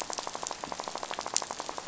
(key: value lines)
label: biophony, rattle
recorder: SoundTrap 500